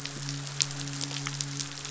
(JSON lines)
{"label": "biophony, midshipman", "recorder": "SoundTrap 500"}